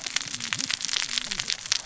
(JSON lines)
{"label": "biophony, cascading saw", "recorder": "SoundTrap 600 or HydroMoth"}